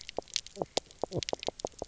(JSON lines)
{"label": "biophony, knock croak", "recorder": "SoundTrap 300"}